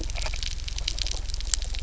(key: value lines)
label: anthrophony, boat engine
recorder: SoundTrap 300